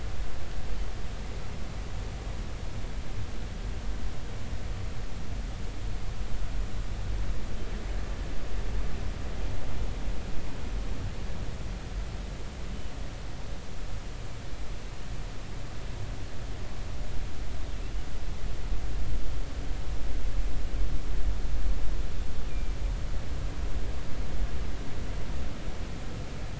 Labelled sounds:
22.5	22.7	killer whale, northern resident, G clan, GG subclan, call N23ii, 2.3 to 2.5 kHz

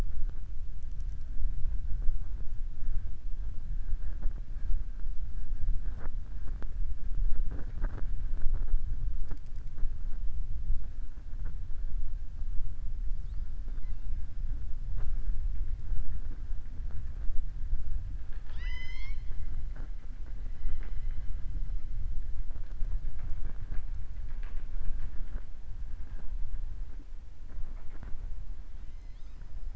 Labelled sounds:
18.2	19.3	killer whale, southern resident, 0.97 to 7.3 kHz

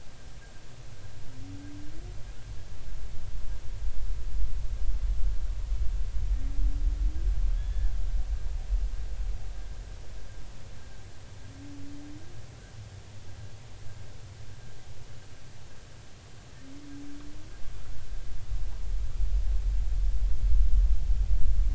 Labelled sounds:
7.5	7.9	humpback whale, 1.6 to 3.5 kHz

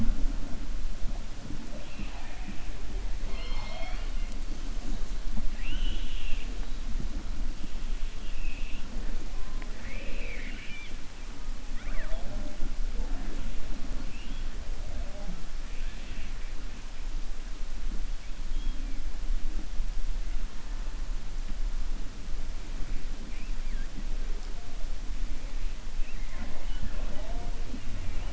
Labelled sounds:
3.2	4.2	killer whale, 0.45 to 5.4 kHz
9.4	11.0	killer whale, 0.45 to 4.0 kHz

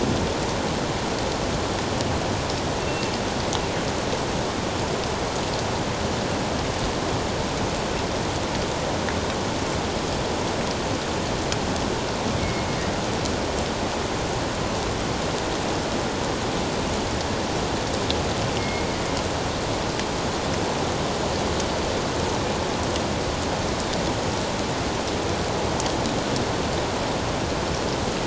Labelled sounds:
2.8	3.1	killer whale, northern resident, G clan, 2.6 to 2.8 kHz
12.4	12.7	killer whale, northern resident, G clan, 2.0 to 2.3 kHz
18.6	18.9	killer whale, northern resident, G clan, 2.1 to 2.2 kHz

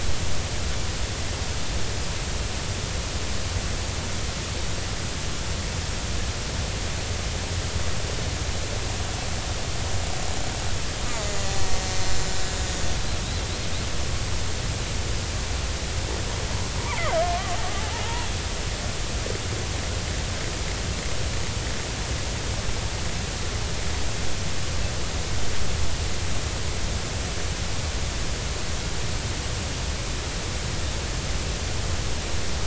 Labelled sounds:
11.2	12.4	killer whale, Bigg's (transient), 1.9 to 7.4 kHz
17.2	18.3	killer whale, Bigg's (transient), 0.83 to 1.2 kHz

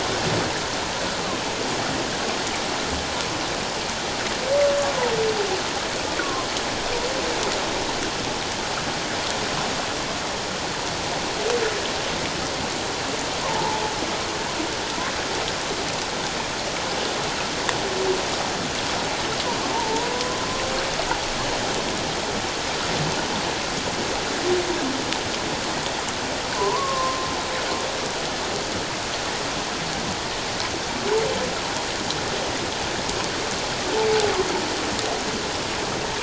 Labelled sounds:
6.2	6.5	humpback whale, 1.0 to 1.2 kHz
13.5	13.8	humpback whale, 0.81 to 1.0 kHz
19.7	20.4	humpback whale, 0.84 to 1.1 kHz
26.5	27.3	humpback whale, 0.84 to 1.2 kHz

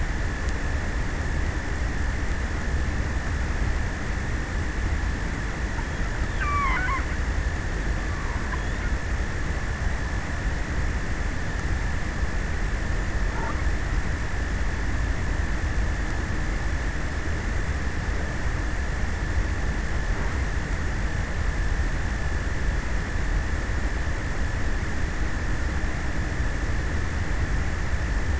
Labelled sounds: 5.8	7.7	killer whale, offshore, 0.47 to 8.0 kHz

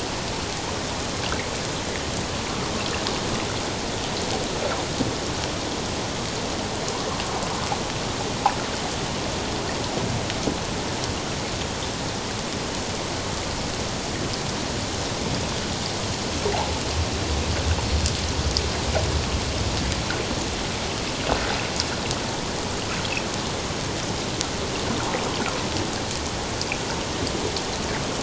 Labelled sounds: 16.5	16.8	water noise, 0.78 to 1.0 kHz

